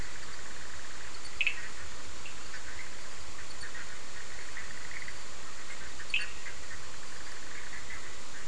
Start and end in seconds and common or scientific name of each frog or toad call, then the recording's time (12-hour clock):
0.0	8.4	Bischoff's tree frog
1.3	1.6	Cochran's lime tree frog
6.1	6.4	Cochran's lime tree frog
10:30pm